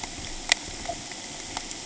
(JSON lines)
{"label": "ambient", "recorder": "HydroMoth"}